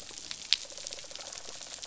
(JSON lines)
{"label": "biophony, rattle response", "recorder": "SoundTrap 500"}